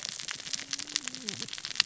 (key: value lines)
label: biophony, cascading saw
recorder: SoundTrap 600 or HydroMoth